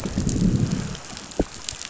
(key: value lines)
label: biophony, growl
recorder: SoundTrap 500